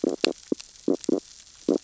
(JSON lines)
{"label": "biophony, stridulation", "recorder": "SoundTrap 600 or HydroMoth"}